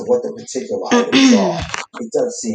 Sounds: Throat clearing